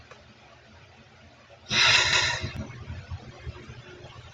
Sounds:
Sigh